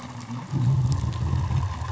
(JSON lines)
{"label": "anthrophony, boat engine", "recorder": "SoundTrap 500"}